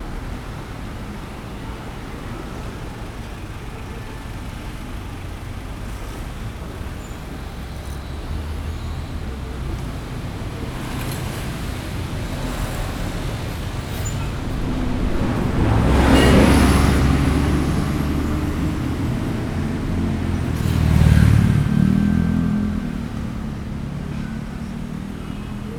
Does a bus door open?
no